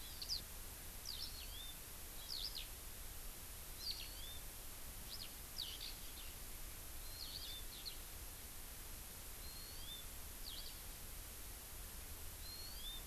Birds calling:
Eurasian Skylark (Alauda arvensis), Hawaii Amakihi (Chlorodrepanis virens)

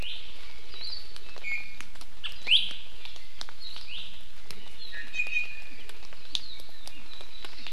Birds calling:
Iiwi (Drepanis coccinea), Hawaii Akepa (Loxops coccineus)

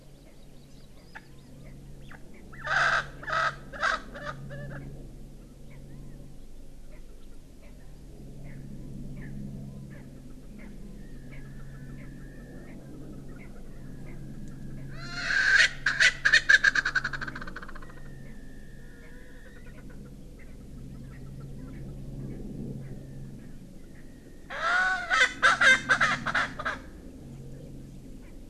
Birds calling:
Hawaii Amakihi (Chlorodrepanis virens), Erckel's Francolin (Pternistis erckelii)

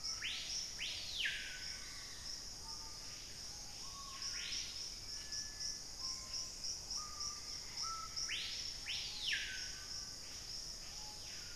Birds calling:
Ringed Kingfisher (Megaceryle torquata), Screaming Piha (Lipaugus vociferans), Dusky-capped Greenlet (Pachysylvia hypoxantha), Purple-throated Fruitcrow (Querula purpurata), Gray Antbird (Cercomacra cinerascens), Black-faced Antthrush (Formicarius analis)

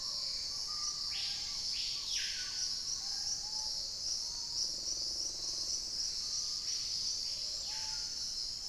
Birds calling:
Dusky-throated Antshrike (Thamnomanes ardesiacus), Screaming Piha (Lipaugus vociferans), Black-tailed Trogon (Trogon melanurus), Dusky-capped Greenlet (Pachysylvia hypoxantha), Hauxwell's Thrush (Turdus hauxwelli)

